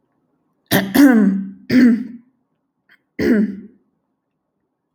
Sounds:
Throat clearing